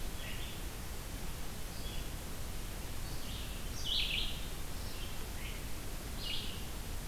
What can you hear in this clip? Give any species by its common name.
Red-eyed Vireo